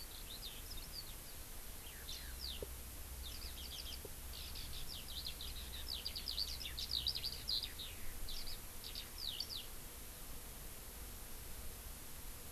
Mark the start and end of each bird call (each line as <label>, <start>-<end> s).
Eurasian Skylark (Alauda arvensis), 0.0-9.6 s